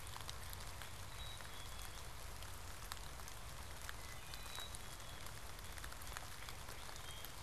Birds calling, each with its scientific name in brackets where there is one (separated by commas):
Northern Cardinal (Cardinalis cardinalis), Black-capped Chickadee (Poecile atricapillus), Wood Thrush (Hylocichla mustelina)